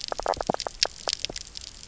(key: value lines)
label: biophony, knock croak
recorder: SoundTrap 300